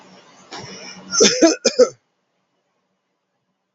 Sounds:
Cough